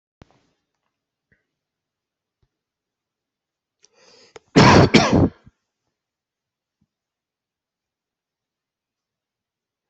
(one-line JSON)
{"expert_labels": [{"quality": "good", "cough_type": "wet", "dyspnea": false, "wheezing": false, "stridor": false, "choking": false, "congestion": false, "nothing": true, "diagnosis": "lower respiratory tract infection", "severity": "mild"}], "age": 42, "gender": "male", "respiratory_condition": true, "fever_muscle_pain": true, "status": "symptomatic"}